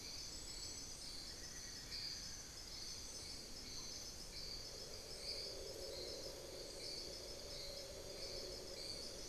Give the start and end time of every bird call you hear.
1.1s-2.8s: Amazonian Barred-Woodcreeper (Dendrocolaptes certhia)
3.7s-4.2s: unidentified bird

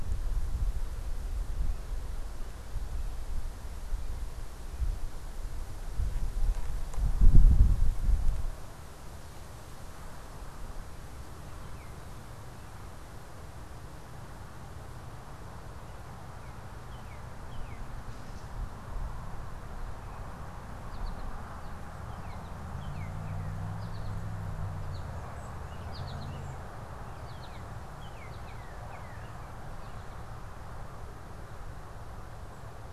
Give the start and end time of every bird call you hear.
11.5s-23.7s: Northern Cardinal (Cardinalis cardinalis)
18.0s-18.6s: Gray Catbird (Dumetella carolinensis)
20.8s-30.2s: American Goldfinch (Spinus tristis)
27.4s-29.4s: Northern Cardinal (Cardinalis cardinalis)

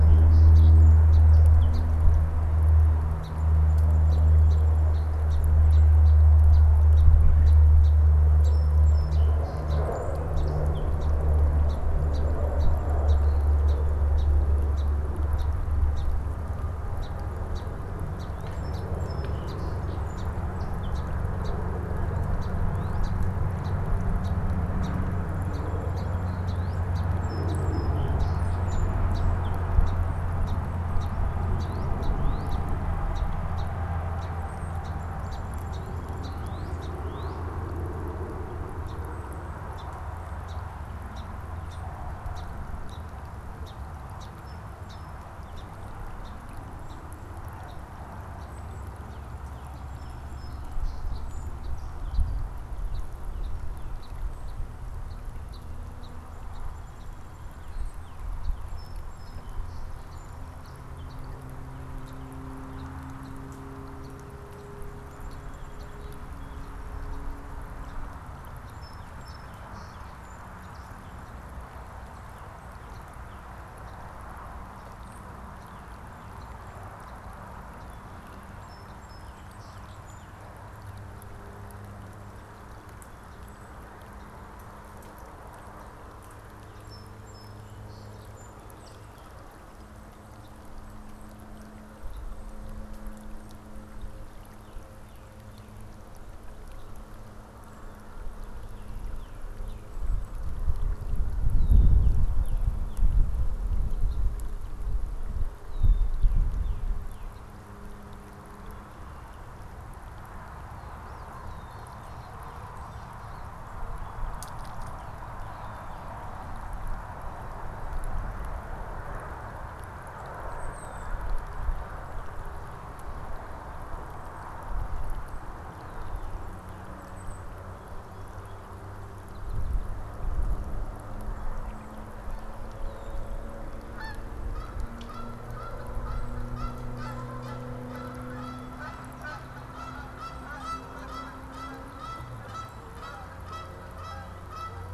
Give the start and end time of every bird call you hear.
0.0s-89.7s: Song Sparrow (Melospiza melodia)
18.3s-18.7s: unidentified bird
22.5s-23.1s: Northern Cardinal (Cardinalis cardinalis)
26.4s-26.9s: Northern Cardinal (Cardinalis cardinalis)
31.4s-32.6s: Northern Cardinal (Cardinalis cardinalis)
34.2s-34.8s: Golden-crowned Kinglet (Regulus satrapa)
35.3s-37.5s: Northern Cardinal (Cardinalis cardinalis)
90.3s-90.6s: Song Sparrow (Melospiza melodia)
92.1s-92.2s: Song Sparrow (Melospiza melodia)
94.4s-95.8s: Northern Cardinal (Cardinalis cardinalis)
98.6s-107.3s: Northern Cardinal (Cardinalis cardinalis)
99.6s-99.8s: Song Sparrow (Melospiza melodia)
101.3s-102.0s: Red-winged Blackbird (Agelaius phoeniceus)
104.0s-104.2s: Song Sparrow (Melospiza melodia)
105.6s-106.2s: Red-winged Blackbird (Agelaius phoeniceus)
111.3s-111.9s: Red-winged Blackbird (Agelaius phoeniceus)
111.9s-113.3s: Northern Cardinal (Cardinalis cardinalis)
120.3s-121.3s: Golden-crowned Kinglet (Regulus satrapa)
126.8s-127.6s: Golden-crowned Kinglet (Regulus satrapa)
129.1s-129.9s: American Goldfinch (Spinus tristis)
132.7s-133.2s: Red-winged Blackbird (Agelaius phoeniceus)
133.7s-144.9s: Canada Goose (Branta canadensis)

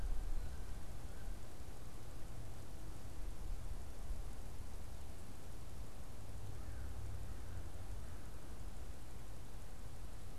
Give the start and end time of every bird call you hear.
0.0s-1.6s: Wood Duck (Aix sponsa)
6.4s-8.7s: American Crow (Corvus brachyrhynchos)

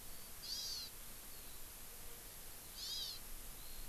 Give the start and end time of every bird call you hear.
0.0s-3.9s: Eurasian Skylark (Alauda arvensis)
2.8s-3.2s: Hawaii Amakihi (Chlorodrepanis virens)

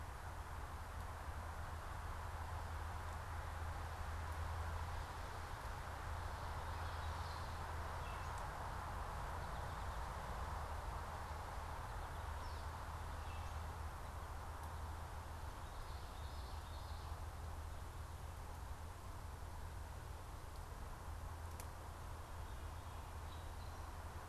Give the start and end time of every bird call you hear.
6.3s-8.6s: Gray Catbird (Dumetella carolinensis)
9.3s-12.6s: American Goldfinch (Spinus tristis)
15.6s-17.1s: Common Yellowthroat (Geothlypis trichas)

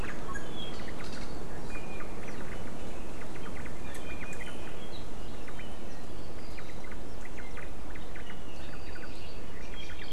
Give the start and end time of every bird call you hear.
0.0s-0.1s: Omao (Myadestes obscurus)
0.8s-1.3s: Omao (Myadestes obscurus)
1.7s-2.1s: Iiwi (Drepanis coccinea)
2.2s-2.7s: Omao (Myadestes obscurus)
3.2s-3.7s: Omao (Myadestes obscurus)
3.8s-4.5s: Iiwi (Drepanis coccinea)
4.0s-4.5s: Omao (Myadestes obscurus)
5.3s-5.6s: Omao (Myadestes obscurus)
6.5s-6.9s: Omao (Myadestes obscurus)
7.2s-8.3s: Omao (Myadestes obscurus)
8.5s-9.5s: Apapane (Himatione sanguinea)
8.7s-9.1s: Omao (Myadestes obscurus)
9.6s-9.9s: Hawaii Amakihi (Chlorodrepanis virens)
9.7s-10.1s: Omao (Myadestes obscurus)

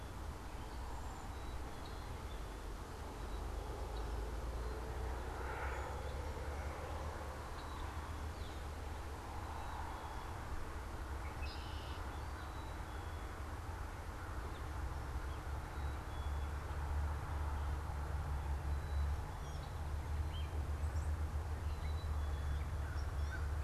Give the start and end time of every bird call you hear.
0.0s-22.7s: Black-capped Chickadee (Poecile atricapillus)
11.0s-12.1s: Red-winged Blackbird (Agelaius phoeniceus)
22.6s-23.5s: American Crow (Corvus brachyrhynchos)

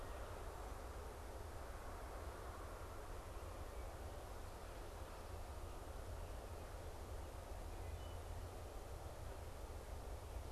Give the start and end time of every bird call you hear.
7.6s-8.3s: Wood Thrush (Hylocichla mustelina)

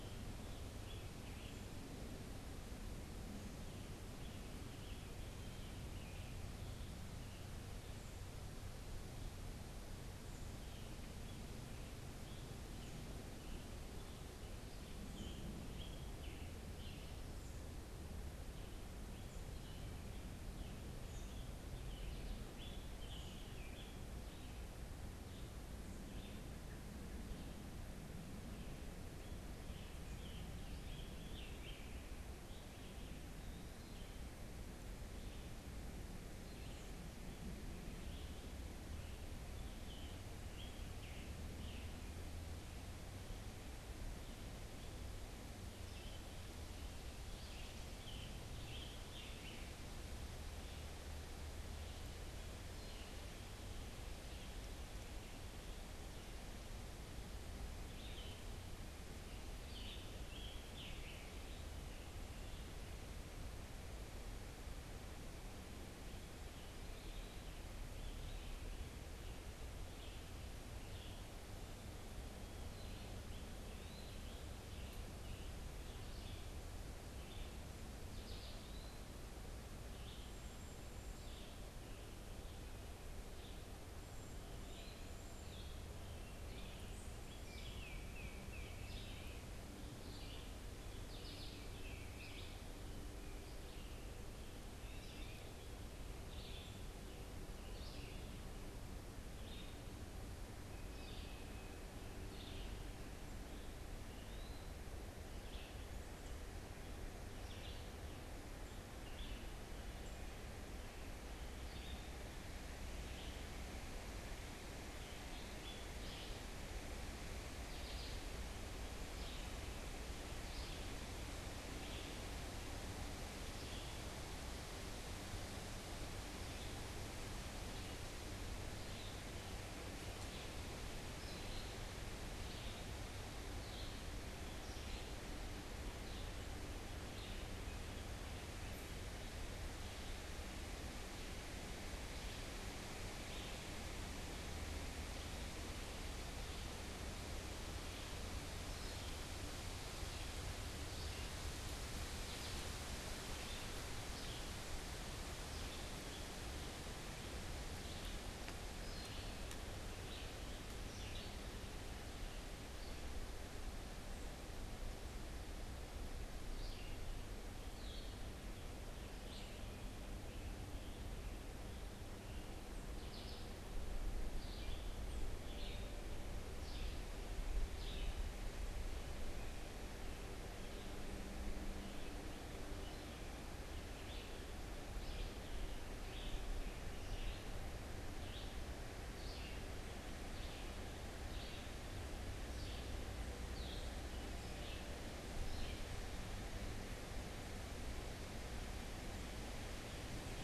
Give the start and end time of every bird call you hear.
0.0s-7.6s: Scarlet Tanager (Piranga olivacea)
8.9s-63.2s: Red-eyed Vireo (Vireo olivaceus)
10.4s-63.2s: Scarlet Tanager (Piranga olivacea)
65.8s-122.2s: Red-eyed Vireo (Vireo olivaceus)
66.6s-76.7s: Scarlet Tanager (Piranga olivacea)
80.0s-87.4s: Cedar Waxwing (Bombycilla cedrorum)
87.3s-89.2s: Tufted Titmouse (Baeolophus bicolor)
91.4s-92.9s: Tufted Titmouse (Baeolophus bicolor)
100.5s-102.0s: Tufted Titmouse (Baeolophus bicolor)
103.6s-104.7s: Eastern Wood-Pewee (Contopus virens)
123.6s-178.5s: Red-eyed Vireo (Vireo olivaceus)
181.6s-196.1s: Red-eyed Vireo (Vireo olivaceus)

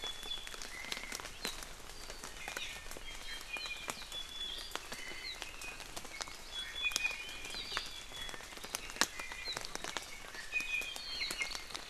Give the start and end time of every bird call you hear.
0.0s-0.7s: Iiwi (Drepanis coccinea)
0.7s-1.3s: Omao (Myadestes obscurus)
2.3s-3.9s: Iiwi (Drepanis coccinea)
4.9s-5.4s: Omao (Myadestes obscurus)
6.5s-7.6s: Iiwi (Drepanis coccinea)
9.1s-9.6s: Iiwi (Drepanis coccinea)
10.5s-11.0s: Iiwi (Drepanis coccinea)

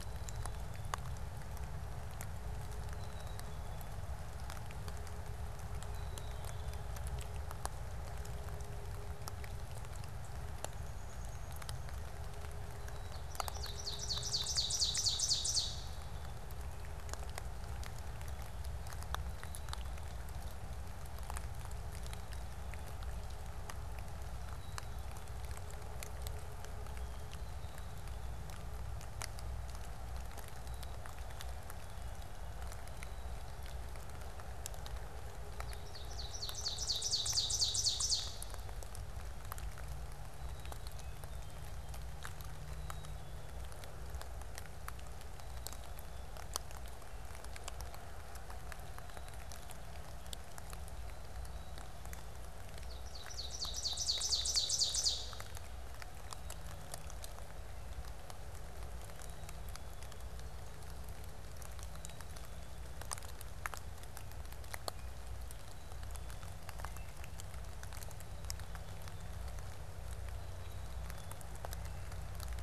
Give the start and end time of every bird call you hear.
0.0s-7.1s: Black-capped Chickadee (Poecile atricapillus)
10.4s-12.6s: Downy Woodpecker (Dryobates pubescens)
13.2s-16.8s: Ovenbird (Seiurus aurocapilla)
19.1s-20.4s: Black-capped Chickadee (Poecile atricapillus)
24.4s-34.2s: Black-capped Chickadee (Poecile atricapillus)
35.5s-39.0s: Ovenbird (Seiurus aurocapilla)
40.1s-52.4s: Black-capped Chickadee (Poecile atricapillus)
52.6s-55.8s: Ovenbird (Seiurus aurocapilla)
56.3s-67.9s: Black-capped Chickadee (Poecile atricapillus)
70.1s-71.6s: Black-capped Chickadee (Poecile atricapillus)

